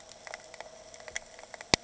{"label": "anthrophony, boat engine", "recorder": "HydroMoth"}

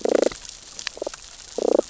{"label": "biophony, damselfish", "recorder": "SoundTrap 600 or HydroMoth"}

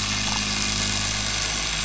{"label": "anthrophony, boat engine", "recorder": "SoundTrap 500"}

